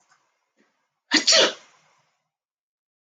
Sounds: Sneeze